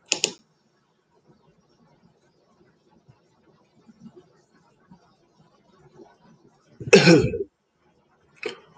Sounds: Cough